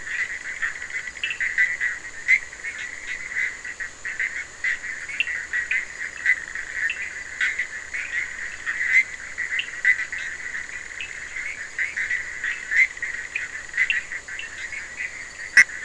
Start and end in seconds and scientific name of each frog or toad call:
0.0	1.6	Boana bischoffi
4.9	7.3	Sphaenorhynchus surdus
9.4	14.7	Sphaenorhynchus surdus